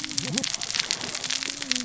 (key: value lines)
label: biophony, cascading saw
recorder: SoundTrap 600 or HydroMoth